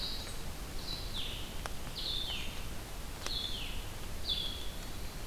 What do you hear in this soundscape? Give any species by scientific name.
Vireo solitarius, Catharus guttatus